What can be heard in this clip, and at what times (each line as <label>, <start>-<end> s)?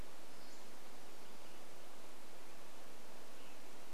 Pacific-slope Flycatcher call, 0-2 s
Western Tanager song, 2-4 s